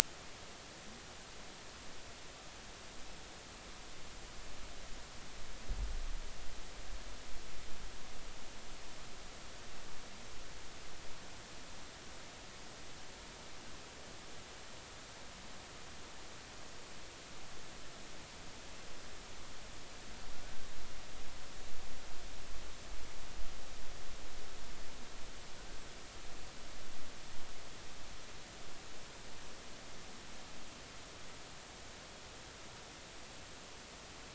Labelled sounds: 20.3	20.7	humpback whale, 1.4 to 1.6 kHz

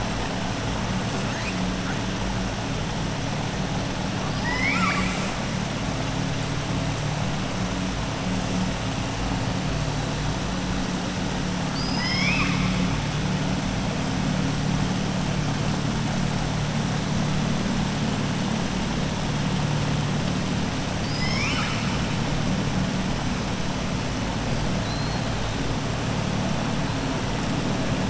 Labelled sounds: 4.2	5.4	killer whale, southern resident, 0.96 to 7.8 kHz
11.6	12.8	killer whale, southern resident, 1.1 to 5.8 kHz
20.9	22.0	killer whale, southern resident, 1.2 to 7.6 kHz
24.7	25.2	killer whale, southern resident, 3.9 to 4.4 kHz

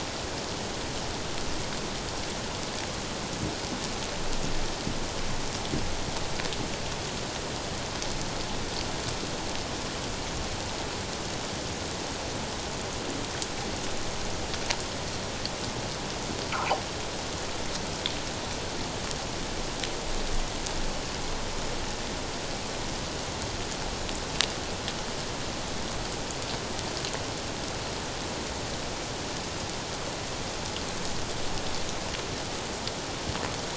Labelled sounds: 16.5	16.8	fish, 0.78 to 1.1 kHz

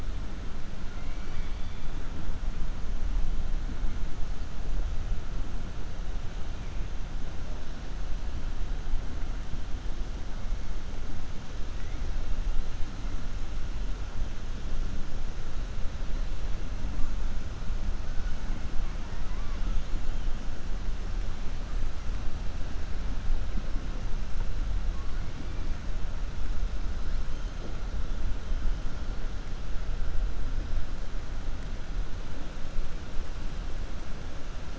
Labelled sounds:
0.9	1.8	killer whale, 1.2 to 4.9 kHz

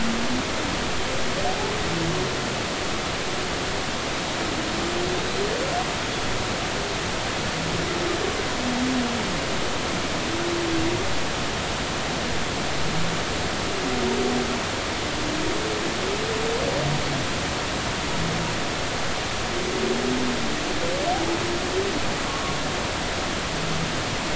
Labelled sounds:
5.1	5.5	humpback whale, 3.5 to 4.2 kHz

